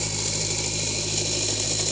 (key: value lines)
label: anthrophony, boat engine
recorder: HydroMoth